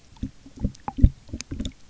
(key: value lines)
label: geophony, waves
recorder: SoundTrap 300